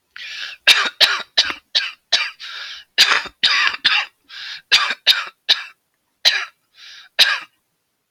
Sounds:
Cough